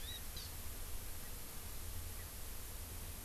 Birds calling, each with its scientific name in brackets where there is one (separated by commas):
Hawaii Amakihi (Chlorodrepanis virens)